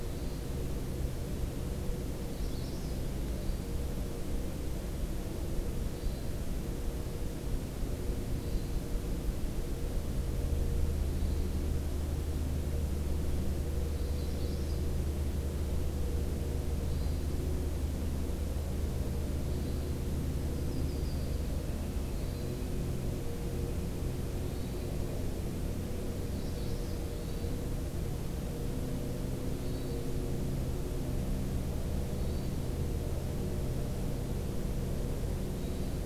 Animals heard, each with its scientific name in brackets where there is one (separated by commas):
Hermit Thrush (Catharus guttatus), Magnolia Warbler (Setophaga magnolia), Northern Flicker (Colaptes auratus), Yellow-rumped Warbler (Setophaga coronata)